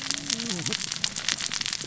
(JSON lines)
{"label": "biophony, cascading saw", "recorder": "SoundTrap 600 or HydroMoth"}